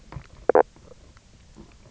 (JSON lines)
{"label": "biophony, knock croak", "recorder": "SoundTrap 300"}